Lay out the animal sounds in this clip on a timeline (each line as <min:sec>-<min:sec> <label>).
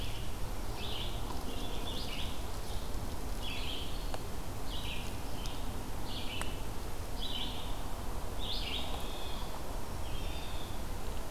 0:00.0-0:11.3 Red-eyed Vireo (Vireo olivaceus)
0:08.9-0:11.3 Blue Jay (Cyanocitta cristata)